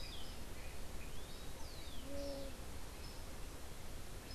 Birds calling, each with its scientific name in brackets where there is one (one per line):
Orange-billed Nightingale-Thrush (Catharus aurantiirostris)
unidentified bird